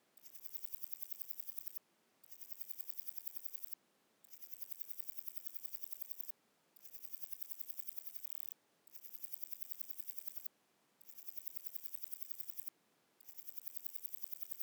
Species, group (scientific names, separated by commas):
Parnassiana coracis, Orthoptera